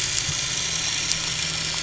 {"label": "biophony, dolphin", "recorder": "SoundTrap 500"}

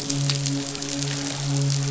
{"label": "biophony, midshipman", "recorder": "SoundTrap 500"}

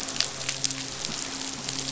{"label": "biophony, midshipman", "recorder": "SoundTrap 500"}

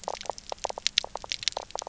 {"label": "biophony, knock croak", "recorder": "SoundTrap 300"}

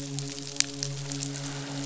{"label": "biophony, midshipman", "recorder": "SoundTrap 500"}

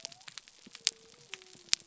{"label": "biophony", "recorder": "SoundTrap 300"}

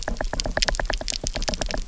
{"label": "biophony, knock", "recorder": "SoundTrap 300"}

